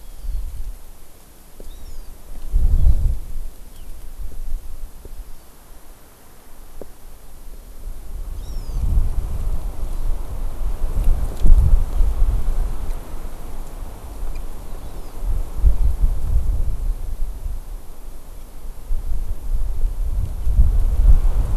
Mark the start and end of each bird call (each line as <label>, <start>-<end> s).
Hawaii Amakihi (Chlorodrepanis virens), 0.0-0.5 s
Hawaii Amakihi (Chlorodrepanis virens), 1.7-2.1 s
Hawaii Amakihi (Chlorodrepanis virens), 2.8-3.1 s
House Finch (Haemorhous mexicanus), 3.7-3.9 s
Hawaii Amakihi (Chlorodrepanis virens), 5.0-5.5 s
Hawaii Amakihi (Chlorodrepanis virens), 8.3-8.9 s
Hawaii Amakihi (Chlorodrepanis virens), 9.8-10.2 s
Hawaii Amakihi (Chlorodrepanis virens), 14.6-15.2 s